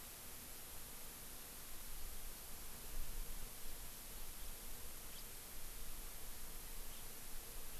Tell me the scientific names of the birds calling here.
Haemorhous mexicanus